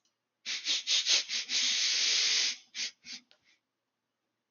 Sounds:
Sniff